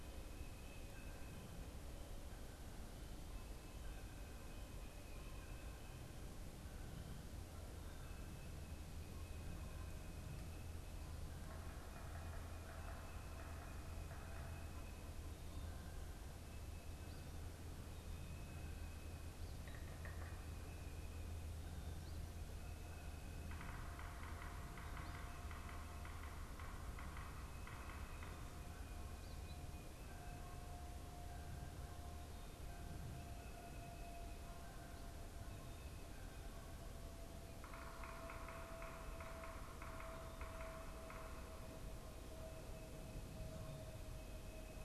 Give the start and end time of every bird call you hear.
[11.29, 14.69] Yellow-bellied Sapsucker (Sphyrapicus varius)
[19.59, 20.69] Yellow-bellied Sapsucker (Sphyrapicus varius)
[23.29, 28.99] Yellow-bellied Sapsucker (Sphyrapicus varius)
[37.49, 42.39] Yellow-bellied Sapsucker (Sphyrapicus varius)

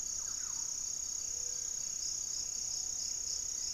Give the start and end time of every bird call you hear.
[0.00, 3.73] Thrush-like Wren (Campylorhynchus turdinus)
[1.03, 1.93] Gray-fronted Dove (Leptotila rufaxilla)
[1.33, 1.83] Cinereous Tinamou (Crypturellus cinereus)

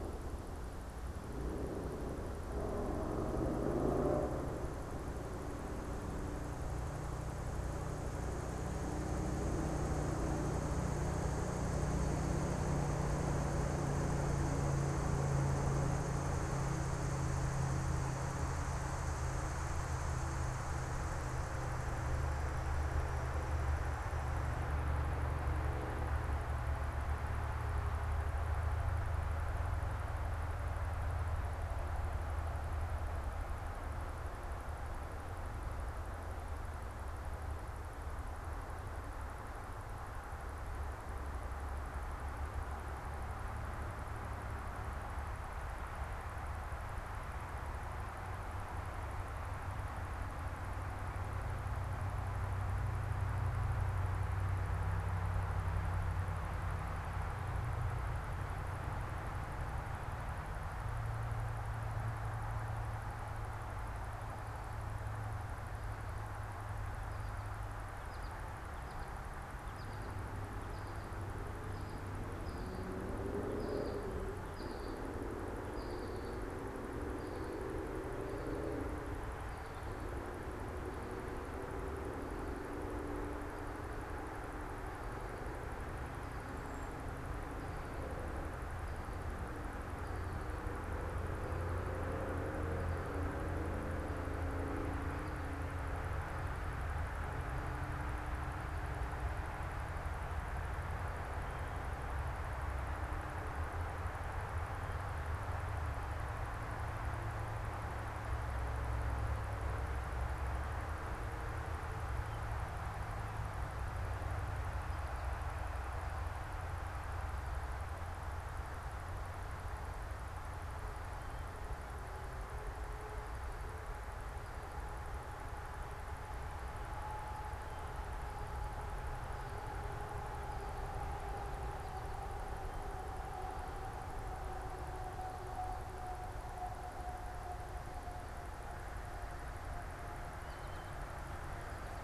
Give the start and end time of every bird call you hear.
[67.01, 76.51] American Goldfinch (Spinus tristis)

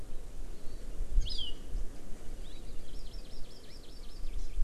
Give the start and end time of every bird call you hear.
[1.15, 1.55] Hawaii Amakihi (Chlorodrepanis virens)
[2.85, 4.45] Hawaii Amakihi (Chlorodrepanis virens)

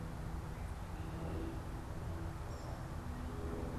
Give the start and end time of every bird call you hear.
[0.00, 3.78] Eastern Wood-Pewee (Contopus virens)

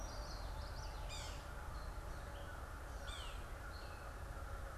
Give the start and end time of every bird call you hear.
[0.00, 1.35] Common Yellowthroat (Geothlypis trichas)
[0.00, 4.77] American Crow (Corvus brachyrhynchos)
[0.00, 4.77] Gray Catbird (Dumetella carolinensis)
[0.85, 3.55] Yellow-bellied Sapsucker (Sphyrapicus varius)

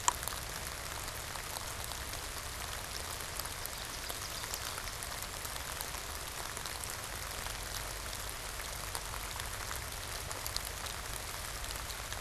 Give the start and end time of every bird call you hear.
[3.09, 5.19] Ovenbird (Seiurus aurocapilla)

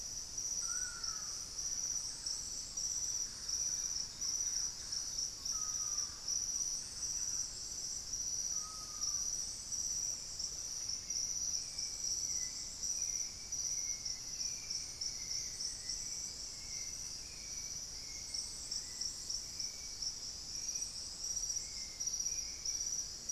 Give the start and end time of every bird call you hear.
[0.00, 9.32] Screaming Piha (Lipaugus vociferans)
[1.12, 7.72] Thrush-like Wren (Campylorhynchus turdinus)
[9.82, 23.22] Hauxwell's Thrush (Turdus hauxwelli)

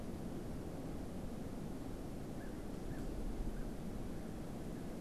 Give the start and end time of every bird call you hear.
[2.21, 4.91] American Crow (Corvus brachyrhynchos)

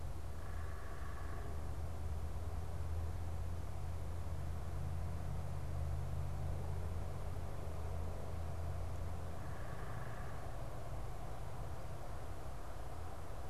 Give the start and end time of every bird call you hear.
[0.00, 1.80] unidentified bird
[9.30, 10.60] unidentified bird

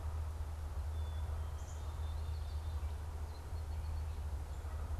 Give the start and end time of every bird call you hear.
[0.66, 2.35] Black-capped Chickadee (Poecile atricapillus)
[2.15, 4.66] Song Sparrow (Melospiza melodia)

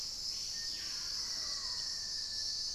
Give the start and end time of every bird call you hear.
[0.00, 2.74] Screaming Piha (Lipaugus vociferans)
[0.25, 2.74] Black-faced Antthrush (Formicarius analis)

